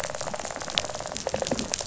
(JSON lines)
{"label": "biophony, rattle response", "recorder": "SoundTrap 500"}